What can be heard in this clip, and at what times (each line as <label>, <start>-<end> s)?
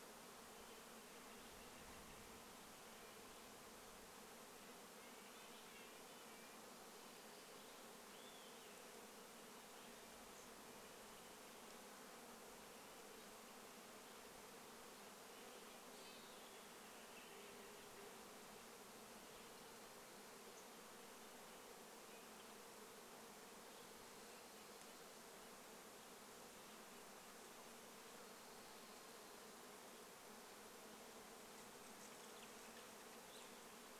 insect buzz, 0-34 s
Red-breasted Nuthatch song, 2-8 s
Olive-sided Flycatcher song, 8-10 s
Lazuli Bunting call, 10-12 s
Red-breasted Nuthatch song, 12-18 s
Steller's Jay call, 16-18 s
Western Wood-Pewee song, 16-18 s
unidentified bird chip note, 20-22 s
Red-breasted Nuthatch song, 22-24 s
unidentified sound, 32-34 s